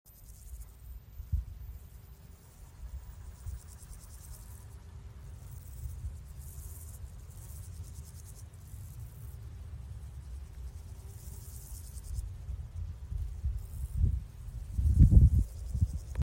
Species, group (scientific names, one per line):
Pseudochorthippus parallelus
Orthoptera